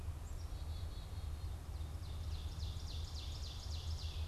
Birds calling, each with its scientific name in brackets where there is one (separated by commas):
Black-capped Chickadee (Poecile atricapillus), Ovenbird (Seiurus aurocapilla)